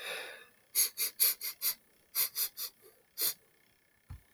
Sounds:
Sniff